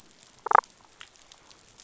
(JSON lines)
{"label": "biophony, damselfish", "recorder": "SoundTrap 500"}